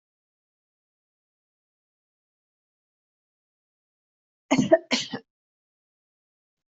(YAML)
expert_labels:
- quality: good
  cough_type: wet
  dyspnea: false
  wheezing: false
  stridor: false
  choking: false
  congestion: false
  nothing: true
  diagnosis: healthy cough
  severity: pseudocough/healthy cough